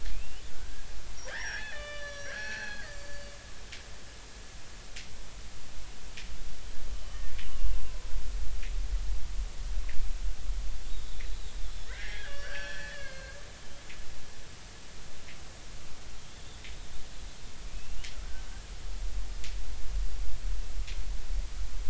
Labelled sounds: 0.1	0.8	killer whale, Bigg's (transient), 1.3 to 3.1 kHz
1.3	3.3	killer whale, Bigg's (transient), 1.1 to 5.9 kHz
7.5	8.1	killer whale, Bigg's (transient), 0.99 to 1.1 kHz
11.9	13.4	killer whale, Bigg's (transient), 1.3 to 5.8 kHz
16.3	16.6	killer whale, Bigg's (transient), 3.4 to 3.7 kHz

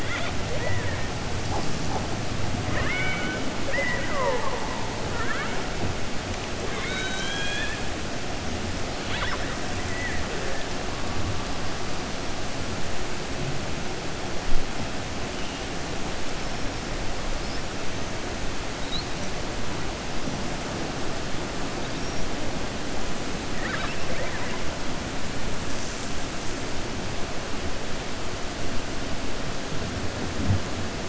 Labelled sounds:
2.6	5.6	killer whale, 0.34 to 3.6 kHz
6.6	7.8	killer whale, 1.2 to 7.8 kHz
9.0	9.5	killer whale, 0.59 to 5.4 kHz
23.5	24.6	killer whale, 0.53 to 3.9 kHz

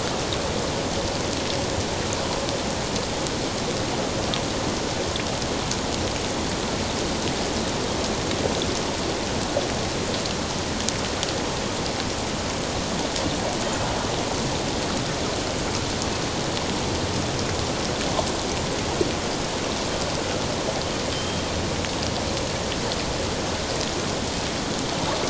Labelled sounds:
21.1	21.5	Pacific white-sided dolphin, 3.0 to 3.3 kHz

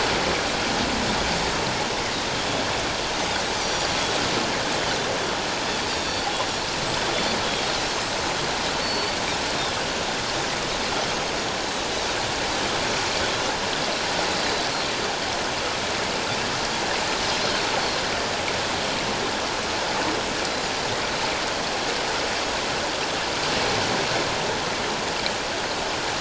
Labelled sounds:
2.3	2.6	Pacific white-sided dolphin, 3.2 to 3.4 kHz
3.6	3.9	Pacific white-sided dolphin, 4.6 to 6.3 kHz
5.9	6.3	Pacific white-sided dolphin, 3.3 to 6.8 kHz
8.8	9.2	Pacific white-sided dolphin, 4.4 to 4.6 kHz
11.1	11.3	Pacific white-sided dolphin, 6.3 to 6.5 kHz

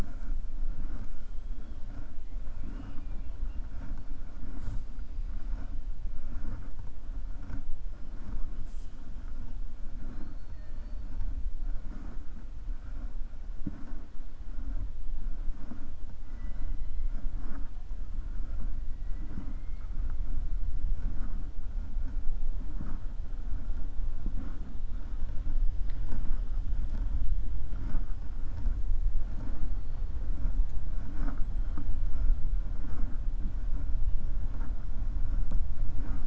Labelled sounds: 16.2	17.3	killer whale, 0.64 to 4.1 kHz

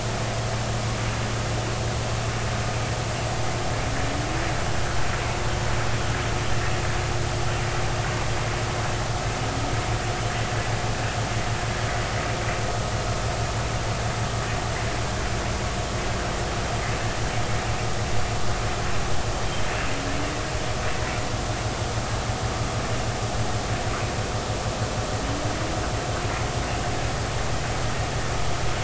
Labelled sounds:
19.3	19.6	humpback whale, 3.0 to 3.3 kHz

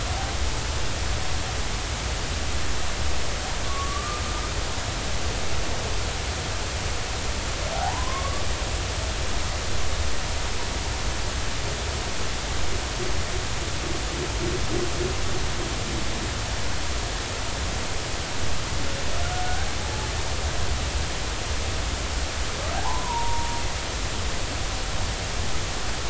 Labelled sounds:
3.6	4.2	humpback whale, 1.1 to 1.2 kHz
7.7	8.4	humpback whale, 0.80 to 1.2 kHz
22.7	23.6	humpback whale, 0.80 to 1.1 kHz

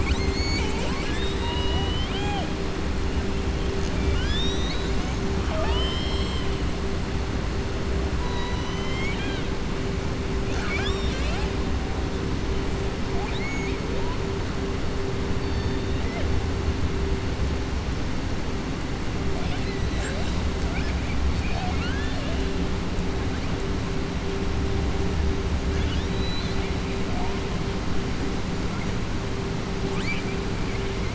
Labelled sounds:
3.9	6.5	killer whale, southern resident, 0.63 to 7.7 kHz
8.2	9.5	killer whale, southern resident, 0.98 to 7.3 kHz
10.4	11.5	killer whale, southern resident, 0.67 to 7.7 kHz
13.1	13.8	killer whale, southern resident, 0.69 to 4.4 kHz
15.4	16.3	killer whale, southern resident, 0.54 to 4.6 kHz
20.6	21.2	killer whale, southern resident, 0.67 to 3.4 kHz
25.7	26.7	killer whale, southern resident, 1.5 to 5.6 kHz

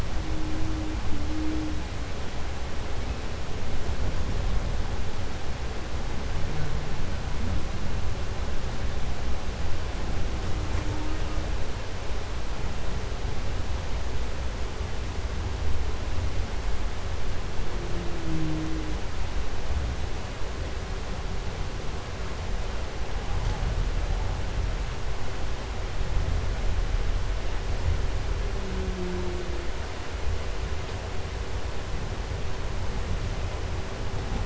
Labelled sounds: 0.0	2.1	humpback whale, 0.15 to 0.74 kHz
2.9	3.6	humpback whale, 1.7 to 3.1 kHz
10.2	11.6	humpback whale, 0.17 to 2.9 kHz
17.3	19.0	humpback whale, 0.11 to 0.78 kHz
23.0	24.8	humpback whale, 0.24 to 1.5 kHz
28.4	29.8	humpback whale, 0.04 to 0.82 kHz

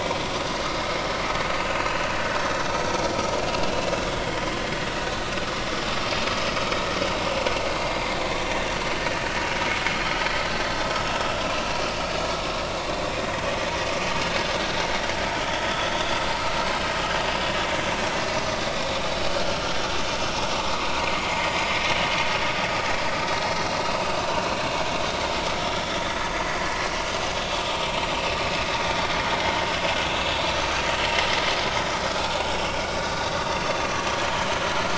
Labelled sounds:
1.6	2.1	vessel noise, 2.5 to 4.2 kHz
7.8	8.6	vessel noise, 4.7 to 5.9 kHz
11.2	11.4	vessel noise, 3.2 to 3.4 kHz
15.3	15.9	vessel noise, 3.3 to 3.5 kHz
19.4	19.7	vessel noise, 1.2 to 1.5 kHz
21.6	23.1	vessel noise, 1.6 to 3.9 kHz
24.2	24.5	vessel noise, 3.8 to 4.1 kHz
25.7	26.7	vessel noise, 4.6 to 5.5 kHz

